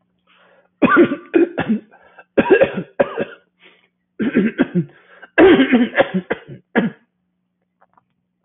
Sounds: Throat clearing